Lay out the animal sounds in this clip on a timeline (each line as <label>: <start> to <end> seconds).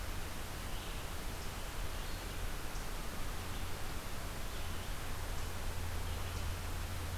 Red-eyed Vireo (Vireo olivaceus): 0.0 to 7.2 seconds